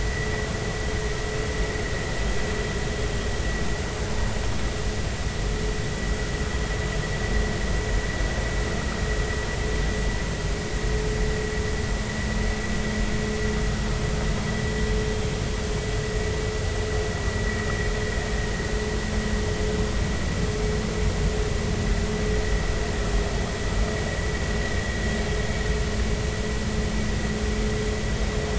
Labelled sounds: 17.5	17.7	vessel noise, 1.8 to 2.0 kHz

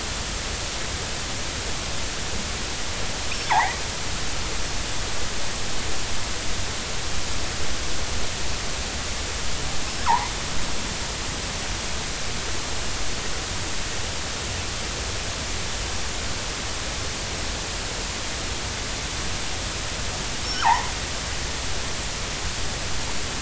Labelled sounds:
3.4	3.8	killer whale, northern resident, 0.80 to 2.4 kHz
9.9	10.3	killer whale, northern resident, 0.80 to 5.4 kHz
20.5	20.9	killer whale, northern resident, 0.80 to 1.7 kHz

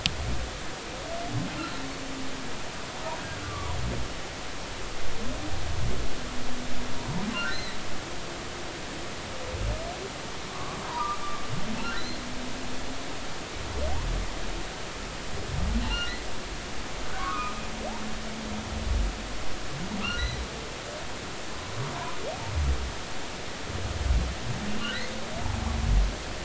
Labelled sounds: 3.4	3.7	humpback whale, 1.1 to 1.2 kHz
7.0	7.8	humpback whale, 0.86 to 4.2 kHz
10.5	11.2	humpback whale, 0.90 to 1.2 kHz
11.9	12.2	humpback whale, 1.7 to 2.1 kHz
15.8	16.1	humpback whale, 2.7 to 4.3 kHz
17.1	17.6	humpback whale, 0.96 to 2.6 kHz
20.0	20.4	humpback whale, 1.1 to 6.1 kHz
24.7	25.0	humpback whale, 2.7 to 3.1 kHz

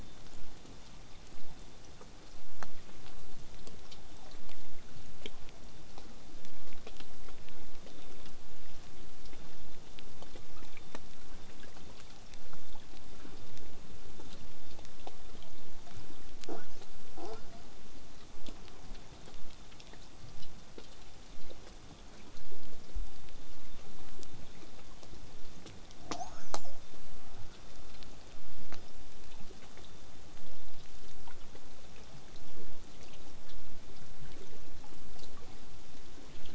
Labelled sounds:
16.5	16.7	killer whale, southern resident, 0.20 to 1.9 kHz
17.1	17.6	killer whale, southern resident, 0.19 to 5.7 kHz
26.0	26.8	killer whale, southern resident, L pod, call S02iii, 0.15 to 8.0 kHz

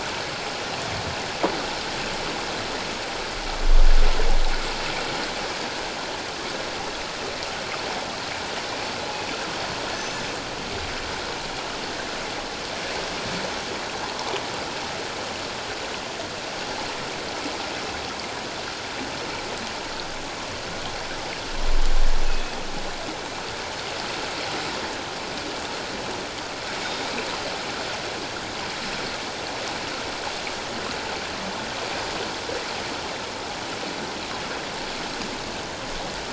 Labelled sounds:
9.9	10.2	killer whale, northern resident, G clan, call N24ii, 6.0 to 6.2 kHz
22.3	22.6	killer whale, northern resident, G clan, call N24ii, 2.5 to 2.6 kHz
26.8	27.1	killer whale, northern resident, G clan, call N24ii, 3.6 to 3.7 kHz

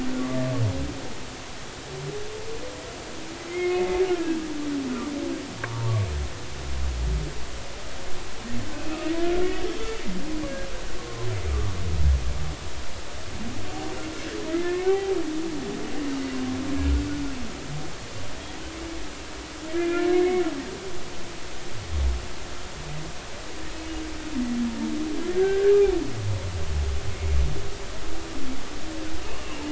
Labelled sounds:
3.5	4.4	humpback whale, 1.6 to 2.2 kHz
8.7	9.7	humpback whale, 2.5 to 3.0 kHz
11.5	11.7	humpback whale, 1.1 to 1.3 kHz
14.5	15.2	humpback whale, 0.80 to 2.2 kHz
19.7	20.4	humpback whale, 1.6 to 2.5 kHz
25.3	25.7	humpback whale, 1.5 to 1.8 kHz
27.1	27.4	humpback whale, 2.1 to 2.2 kHz

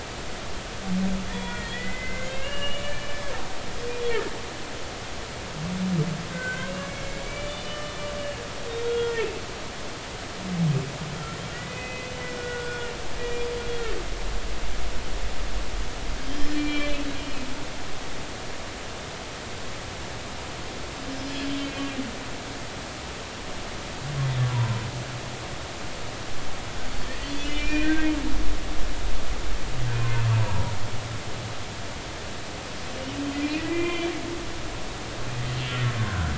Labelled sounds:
1.3	3.2	humpback whale, 0.93 to 3.5 kHz
4.0	4.3	humpback whale, 1.6 to 2.0 kHz
6.3	8.4	humpback whale, 1.4 to 6.2 kHz
8.7	9.4	humpback whale, 1.3 to 3.8 kHz
11.5	13.5	humpback whale, 1.4 to 3.4 kHz
16.2	16.9	humpback whale, 2.3 to 3.2 kHz
21.2	21.7	humpback whale, 3.0 to 5.1 kHz
27.3	28.1	humpback whale, 1.5 to 3.0 kHz
30.3	30.7	humpback whale, 0.86 to 1.0 kHz
33.4	34.1	humpback whale, 1.9 to 3.2 kHz
35.4	36.3	humpback whale, 1.3 to 3.2 kHz

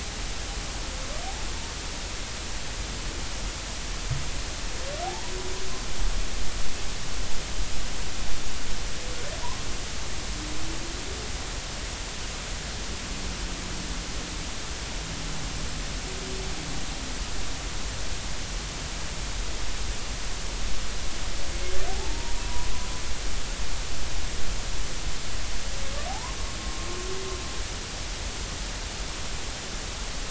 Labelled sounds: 5.0	5.3	humpback whale, 0.80 to 1.0 kHz
21.9	22.7	humpback whale, 0.80 to 1.1 kHz
26.1	26.9	humpback whale, 0.80 to 1.1 kHz

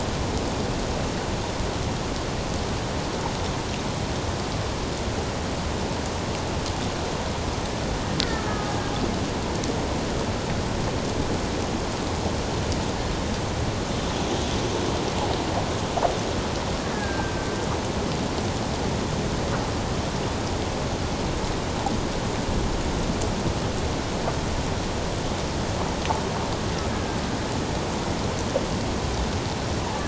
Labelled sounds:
8.5	8.7	killer whale, Bigg's (transient), 1.2 to 1.3 kHz
16.9	17.5	killer whale, Bigg's (transient), 1.5 to 1.8 kHz

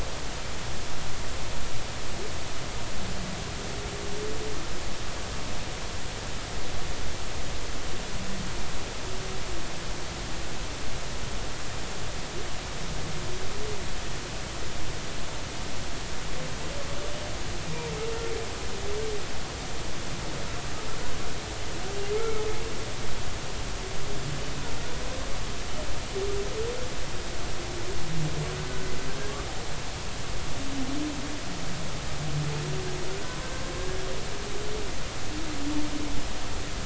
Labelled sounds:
22.1	22.4	humpback whale, 1.2 to 2.3 kHz
28.5	28.9	humpback whale, 1.4 to 1.6 kHz

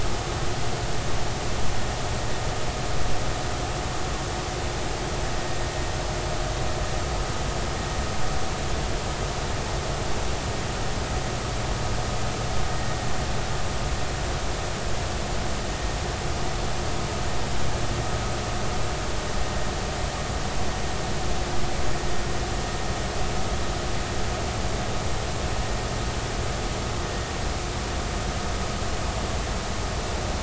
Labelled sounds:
12.7	13.0	vessel noise, 1.8 to 1.9 kHz

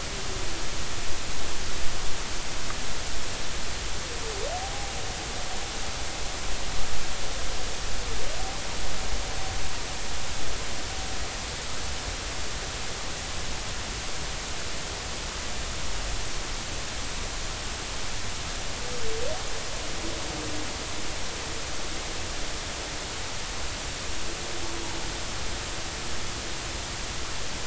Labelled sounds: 4.5	4.9	humpback whale, 0.80 to 0.86 kHz

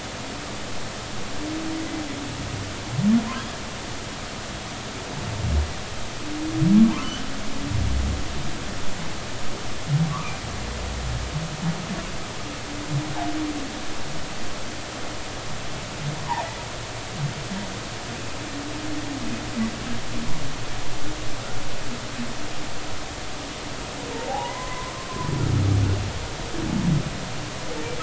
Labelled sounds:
6.8	7.1	humpback whale, 0.80 to 1.2 kHz
24.3	24.9	humpback whale, 0.80 to 1.1 kHz

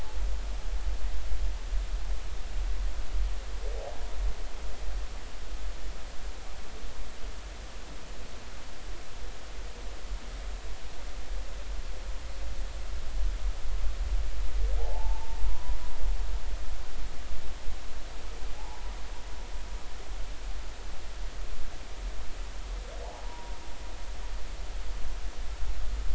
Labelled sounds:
14.8	15.7	humpback whale, 0.80 to 1.1 kHz
18.5	18.8	humpback whale, 0.80 to 0.99 kHz
23.0	23.5	humpback whale, 0.80 to 1.0 kHz

